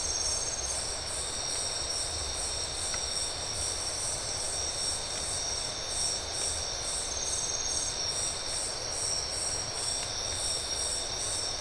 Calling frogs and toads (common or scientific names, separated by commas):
none